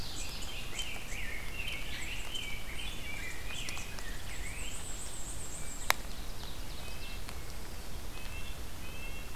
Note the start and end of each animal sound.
0.0s-0.9s: Ovenbird (Seiurus aurocapilla)
0.3s-4.9s: Rose-breasted Grosbeak (Pheucticus ludovicianus)
4.1s-6.1s: Black-and-white Warbler (Mniotilta varia)
5.6s-7.3s: Ovenbird (Seiurus aurocapilla)
6.7s-9.4s: Red-breasted Nuthatch (Sitta canadensis)

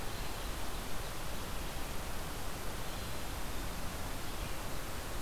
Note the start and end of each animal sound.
2.7s-3.9s: Black-capped Chickadee (Poecile atricapillus)

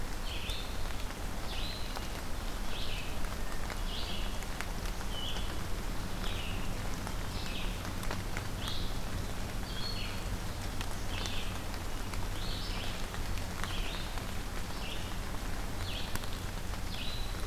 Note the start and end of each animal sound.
0.0s-17.5s: Red-eyed Vireo (Vireo olivaceus)

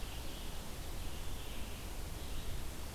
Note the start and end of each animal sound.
0.0s-2.9s: Red-eyed Vireo (Vireo olivaceus)

